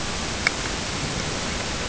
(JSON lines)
{"label": "ambient", "recorder": "HydroMoth"}